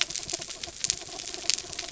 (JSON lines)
{"label": "anthrophony, mechanical", "recorder": "SoundTrap 300"}